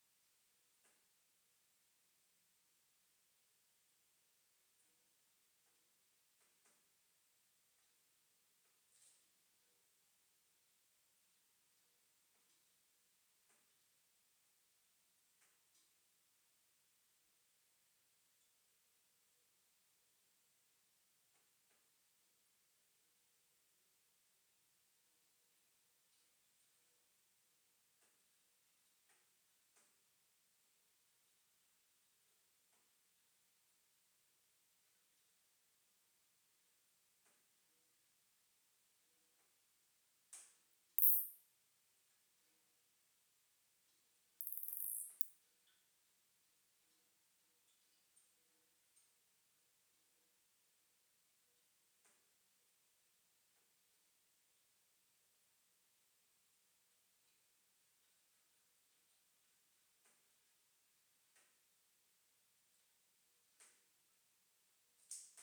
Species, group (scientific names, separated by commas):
Isophya modesta, Orthoptera